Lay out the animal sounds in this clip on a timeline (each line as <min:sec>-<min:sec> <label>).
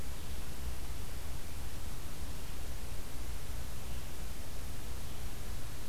0:00.0-0:05.9 Red-eyed Vireo (Vireo olivaceus)